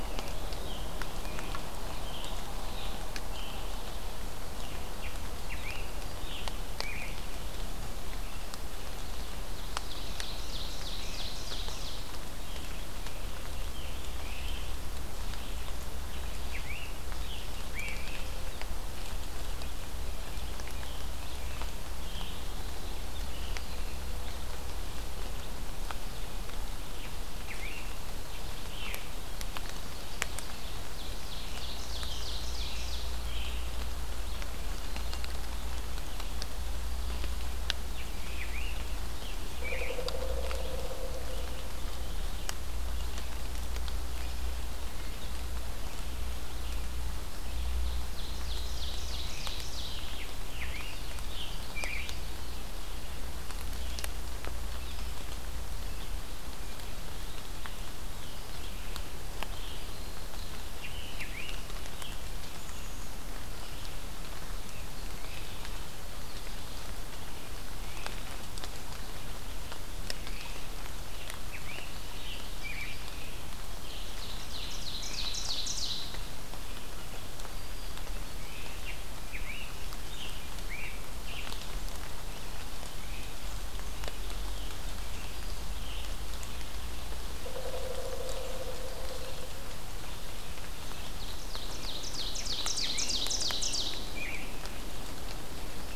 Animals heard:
Ovenbird (Seiurus aurocapilla), Pileated Woodpecker (Dryocopus pileatus), Scarlet Tanager (Piranga olivacea)

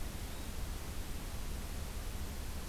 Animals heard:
Yellow-bellied Flycatcher (Empidonax flaviventris)

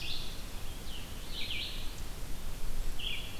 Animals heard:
Red-eyed Vireo (Vireo olivaceus)

